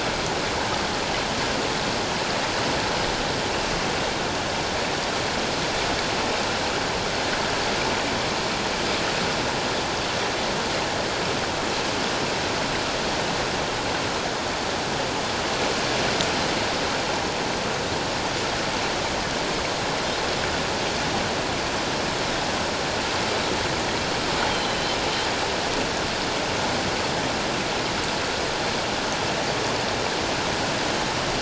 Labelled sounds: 24.5	25.0	Pacific white-sided dolphin, 3.0 to 4.2 kHz

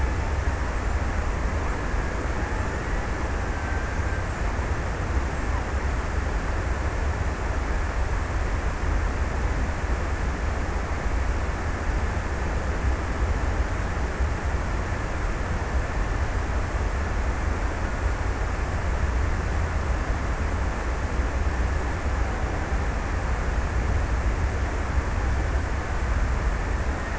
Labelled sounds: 2.0	4.6	killer whale, Bigg's (transient), 1.3 to 1.9 kHz

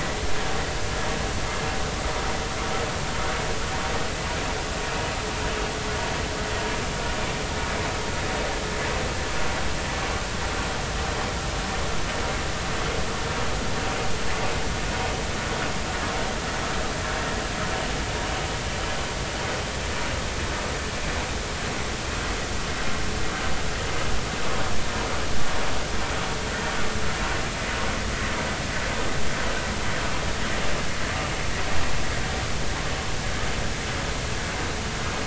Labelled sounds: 26.5	26.7	vessel noise, 1.8 to 2.0 kHz

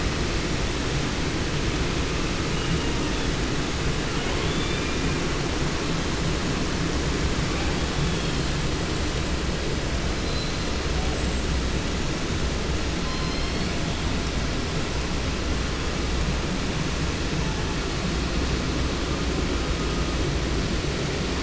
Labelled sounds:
2.5	3.4	killer whale, 0.74 to 4.9 kHz
4.0	5.4	killer whale, 0.52 to 5.2 kHz
7.5	8.7	killer whale, 0.64 to 6.4 kHz
10.0	11.5	killer whale, 0.64 to 8.0 kHz
12.9	14.1	killer whale, southern resident, J pod, call S01, 0.66 to 5.9 kHz
17.3	18.1	killer whale, 0.61 to 2.5 kHz

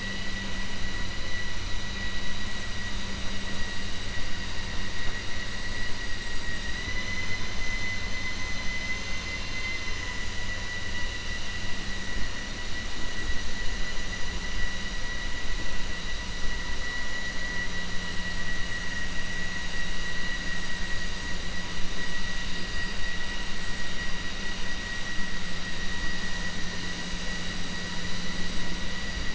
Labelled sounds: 6.4	7.3	vessel noise, 1.0 to 4.9 kHz

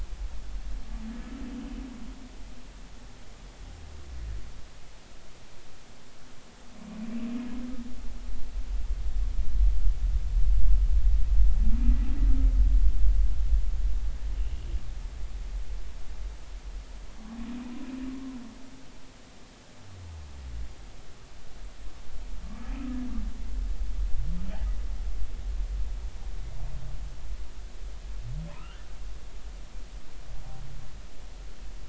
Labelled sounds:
24.5	24.8	humpback whale, 1.5 to 2.0 kHz
28.5	28.8	humpback whale, 1.2 to 3.2 kHz

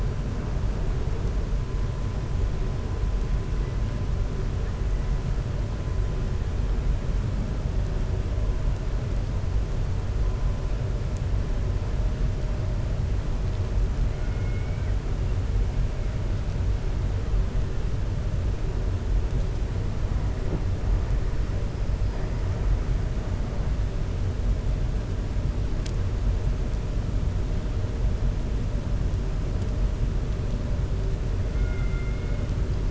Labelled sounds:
14.2	14.9	killer whale, 1.4 to 2.9 kHz
31.5	32.4	killer whale, 1.4 to 2.9 kHz

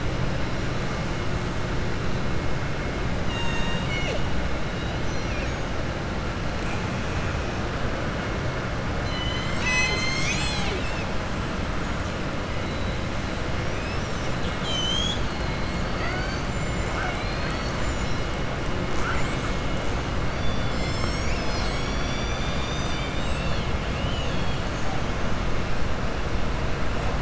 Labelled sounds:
3.2	4.2	killer whale, southern resident, 0.58 to 7.9 kHz
4.7	5.6	killer whale, southern resident, 1.8 to 6.6 kHz
16.8	18.2	killer whale, southern resident, 0.75 to 7.8 kHz
23.9	24.6	killer whale, southern resident, 2.5 to 4.0 kHz

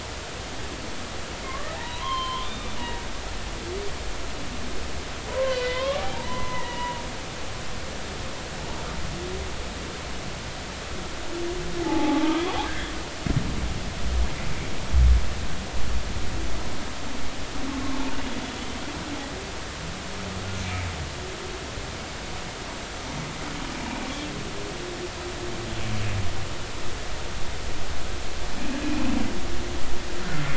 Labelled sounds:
1.4	2.7	humpback whale, 0.80 to 4.3 kHz
5.3	7.0	humpback whale, 0.80 to 3.8 kHz
11.8	12.9	humpback whale, 0.80 to 1.9 kHz

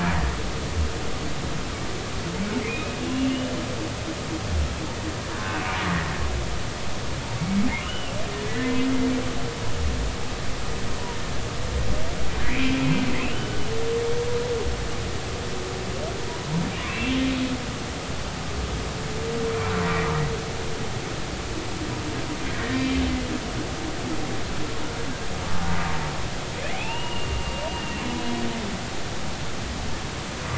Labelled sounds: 2.6	3.5	humpback whale, 2.0 to 3.0 kHz
5.4	5.7	humpback whale, 1.4 to 1.6 kHz
7.8	8.8	humpback whale, 1.2 to 3.1 kHz
12.4	12.8	humpback whale, 1.9 to 2.7 kHz
13.2	13.6	humpback whale, 1.4 to 3.1 kHz
16.8	17.1	humpback whale, 2.1 to 2.8 kHz
22.5	23.0	humpback whale, 1.7 to 2.4 kHz
26.7	28.1	humpback whale, 0.80 to 3.0 kHz

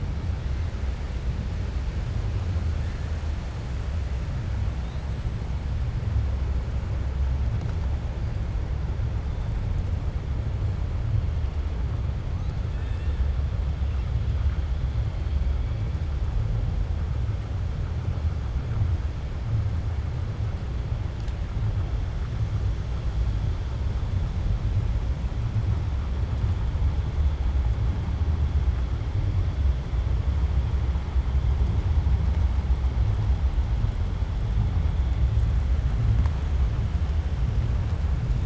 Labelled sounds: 12.7	13.2	killer whale, 1.5 to 4.3 kHz

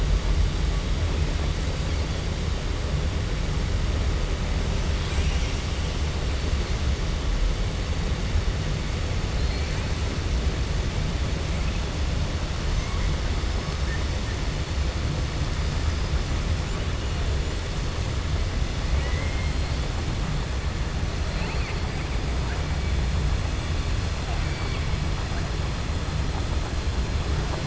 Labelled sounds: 9.3	9.9	killer whale, 1.5 to 4.4 kHz
18.9	19.5	killer whale, 0.99 to 3.1 kHz

